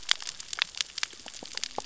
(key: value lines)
label: biophony, cascading saw
recorder: SoundTrap 600 or HydroMoth